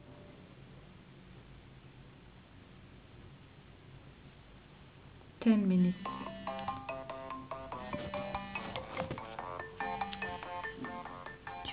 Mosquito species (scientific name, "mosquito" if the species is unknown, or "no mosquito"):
no mosquito